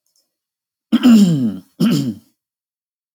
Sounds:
Throat clearing